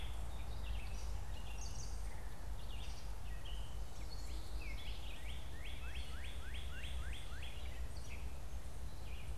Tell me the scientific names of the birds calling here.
Dumetella carolinensis, Vireo olivaceus, Cardinalis cardinalis